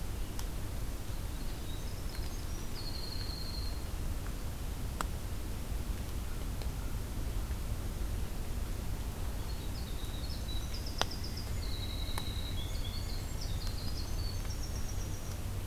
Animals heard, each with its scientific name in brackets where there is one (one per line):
Winter Wren (Troglodytes hiemalis)
Pileated Woodpecker (Dryocopus pileatus)